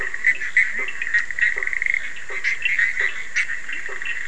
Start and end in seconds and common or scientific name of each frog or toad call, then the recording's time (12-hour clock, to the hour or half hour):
0.0	4.2	Bischoff's tree frog
0.8	4.2	blacksmith tree frog
midnight